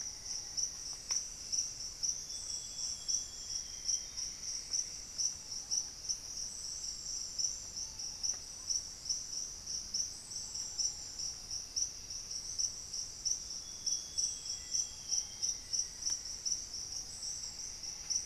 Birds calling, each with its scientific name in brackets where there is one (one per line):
Thrush-like Wren (Campylorhynchus turdinus)
Black-faced Antthrush (Formicarius analis)
Ruddy Pigeon (Patagioenas subvinacea)
Amazonian Grosbeak (Cyanoloxia rothschildii)
Cinnamon-throated Woodcreeper (Dendrexetastes rufigula)
Plumbeous Antbird (Myrmelastes hyperythrus)